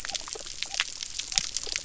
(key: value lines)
label: biophony
recorder: SoundTrap 300